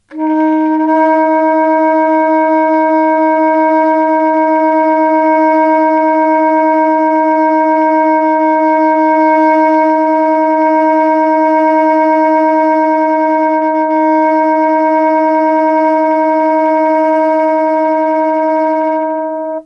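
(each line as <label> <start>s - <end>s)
Loud and continuous wailing of a wind instrument with slight vibrato. 0.2s - 19.5s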